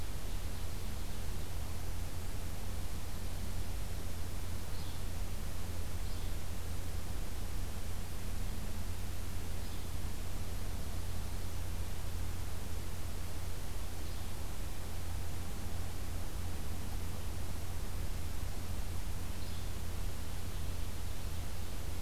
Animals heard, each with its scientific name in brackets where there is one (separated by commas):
Yellow-bellied Flycatcher (Empidonax flaviventris), Ovenbird (Seiurus aurocapilla)